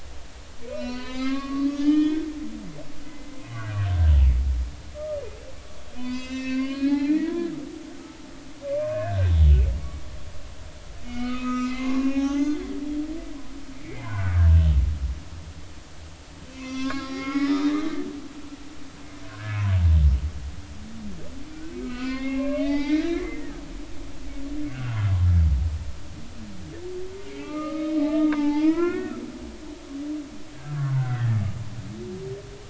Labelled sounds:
0.7	2.6	humpback whale, 0.96 to 6.1 kHz
3.0	3.4	humpback whale, 2.0 to 2.1 kHz
4.9	7.5	humpback whale, 0.96 to 7.5 kHz
8.2	9.5	humpback whale, 0.93 to 3.5 kHz
11.0	12.6	humpback whale, 0.80 to 6.3 kHz
13.2	14.4	humpback whale, 1.3 to 2.4 kHz
16.5	17.8	humpback whale, 0.86 to 6.1 kHz
18.2	19.6	humpback whale, 1.1 to 3.4 kHz
21.5	23.6	humpback whale, 0.80 to 5.0 kHz
24.7	25.0	humpback whale, 1.3 to 1.6 kHz
27.2	29.2	humpback whale, 0.80 to 3.7 kHz
30.5	31.4	humpback whale, 1.3 to 2.0 kHz

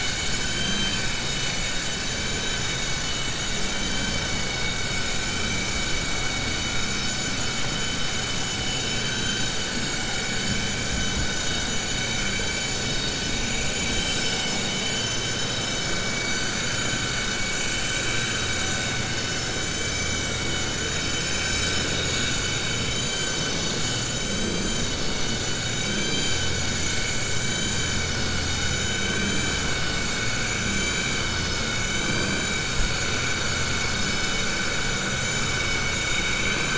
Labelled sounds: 8.6	9.5	vessel noise, 2.3 to 7.7 kHz

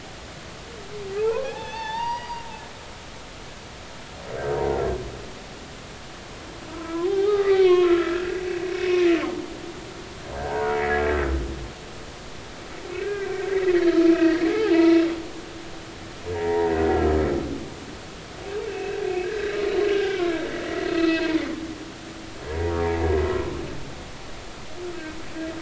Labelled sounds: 1.2	2.5	humpback whale, 0.80 to 4.9 kHz
6.7	8.4	humpback whale, 0.80 to 4.2 kHz
8.8	9.1	humpback whale, 2.4 to 2.6 kHz
10.3	11.0	humpback whale, 0.80 to 2.0 kHz
13.0	13.3	humpback whale, 1.5 to 1.7 kHz
14.2	15.5	humpback whale, 0.80 to 2.4 kHz
16.3	16.7	humpback whale, 0.80 to 2.1 kHz
18.7	19.6	humpback whale, 1.5 to 4.0 kHz
19.9	21.4	humpback whale, 0.86 to 4.1 kHz

